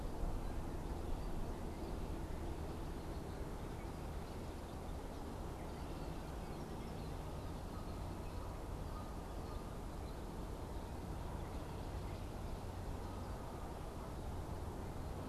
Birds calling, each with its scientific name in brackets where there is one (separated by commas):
Red-winged Blackbird (Agelaius phoeniceus)